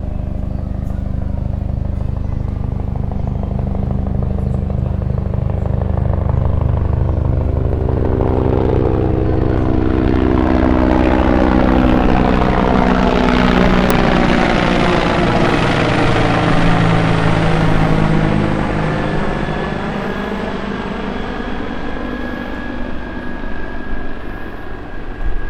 Are propellers making this sound?
yes